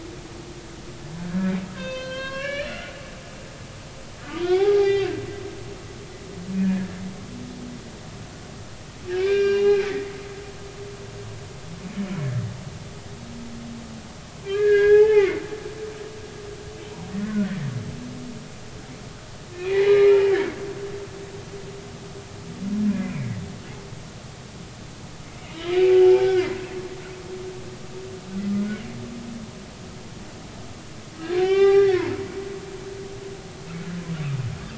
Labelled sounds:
1.2	3.0	humpback whale, 0.99 to 6.3 kHz
4.4	5.1	humpback whale, 0.80 to 4.0 kHz
6.6	7.0	humpback whale, 1.6 to 1.9 kHz
9.1	10.0	humpback whale, 1.5 to 5.7 kHz
11.8	12.2	humpback whale, 2.2 to 2.5 kHz
14.4	15.4	humpback whale, 0.80 to 3.4 kHz
17.1	17.5	humpback whale, 1.4 to 2.0 kHz
19.5	20.5	humpback whale, 1.6 to 2.6 kHz
22.9	23.3	humpback whale, 2.1 to 2.5 kHz
25.7	26.6	humpback whale, 1.3 to 2.8 kHz
31.4	32.1	humpback whale, 0.80 to 5.6 kHz

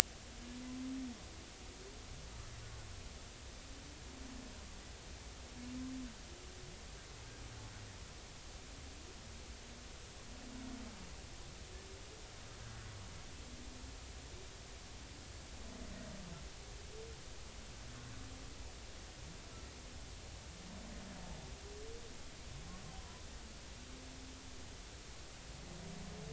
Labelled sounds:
23.0	23.2	humpback whale, 0.93 to 1.0 kHz

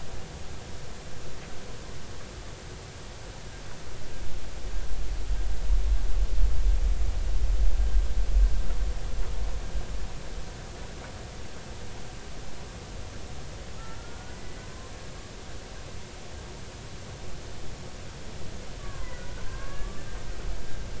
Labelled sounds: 14.0	14.6	humpback whale, 1.3 to 2.1 kHz
18.8	20.0	humpback whale, 0.96 to 2.1 kHz

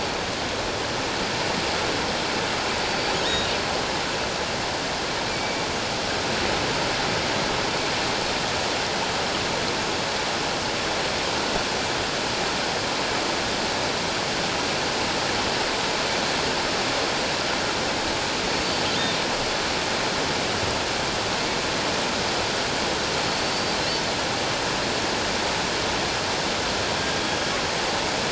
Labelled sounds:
2.9	3.1	killer whale, offshore, 4.5 to 4.7 kHz
5.3	5.6	killer whale, offshore, 2.1 to 2.4 kHz
18.5	18.8	killer whale, offshore, 4.3 to 4.6 kHz
23.2	23.8	killer whale, offshore, 4.3 to 4.7 kHz

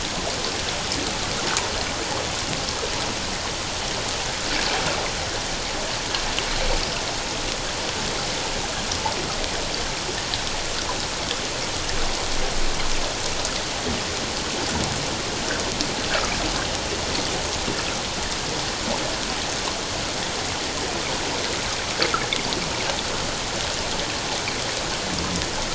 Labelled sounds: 16.1	16.3	water noise, 1.2 to 1.7 kHz

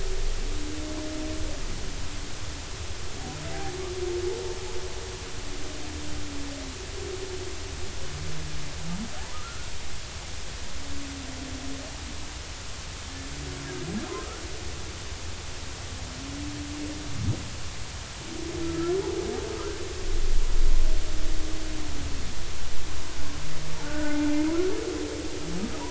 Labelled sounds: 9.3	9.7	humpback whale, 1.2 to 1.5 kHz
14.1	14.4	humpback whale, 1.2 to 1.4 kHz
18.6	19.0	humpback whale, 1.2 to 1.4 kHz
23.8	24.3	humpback whale, 0.83 to 1.6 kHz

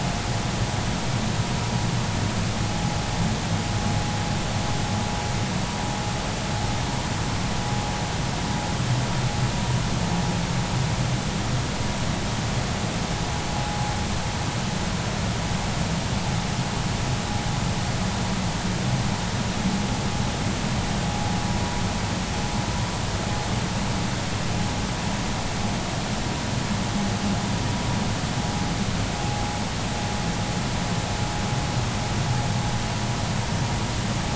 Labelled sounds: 13.5	13.8	vessel noise, 0.80 to 0.86 kHz

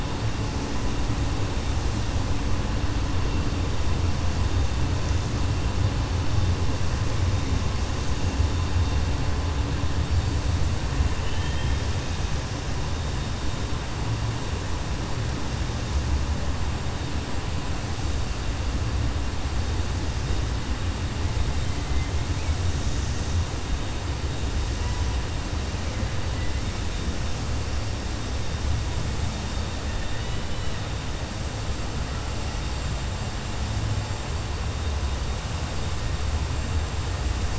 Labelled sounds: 11.1	11.8	killer whale, 1.8 to 3.3 kHz

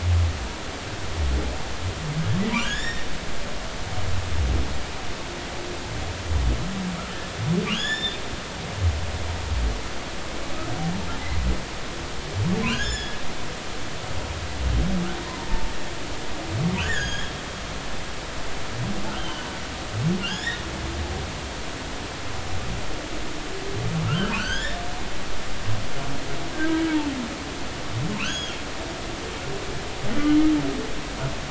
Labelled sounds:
2.5	3.1	humpback whale, 1.3 to 5.6 kHz
7.7	8.2	humpback whale, 1.5 to 7.2 kHz
12.7	13.2	humpback whale, 1.4 to 5.4 kHz
15.3	15.7	humpback whale, 0.86 to 1.1 kHz
16.8	17.3	humpback whale, 1.4 to 6.7 kHz
19.1	19.5	humpback whale, 2.9 to 3.2 kHz
20.2	20.6	humpback whale, 1.5 to 5.8 kHz
24.1	24.8	humpback whale, 1.2 to 5.6 kHz
26.5	26.8	humpback whale, 1.5 to 1.7 kHz
28.2	28.6	humpback whale, 2.3 to 3.4 kHz

